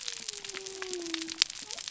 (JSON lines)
{"label": "biophony", "recorder": "SoundTrap 300"}